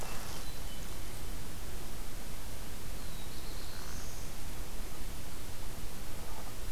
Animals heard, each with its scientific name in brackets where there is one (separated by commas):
Black-throated Blue Warbler (Setophaga caerulescens), Hermit Thrush (Catharus guttatus)